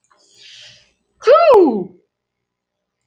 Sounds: Sneeze